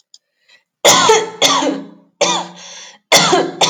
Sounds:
Cough